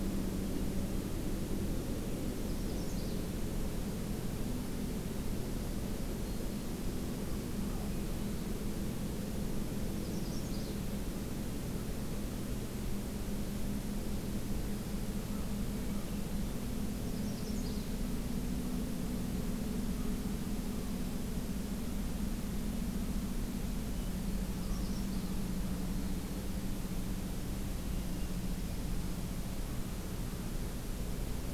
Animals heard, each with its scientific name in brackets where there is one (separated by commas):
Dark-eyed Junco (Junco hyemalis), Hermit Thrush (Catharus guttatus), Black-throated Green Warbler (Setophaga virens), Magnolia Warbler (Setophaga magnolia)